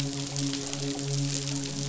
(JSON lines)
{"label": "biophony, midshipman", "recorder": "SoundTrap 500"}